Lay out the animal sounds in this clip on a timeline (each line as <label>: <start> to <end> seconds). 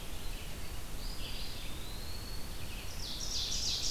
Red-eyed Vireo (Vireo olivaceus): 0.0 to 3.9 seconds
Eastern Wood-Pewee (Contopus virens): 0.9 to 2.5 seconds
Ovenbird (Seiurus aurocapilla): 2.7 to 3.9 seconds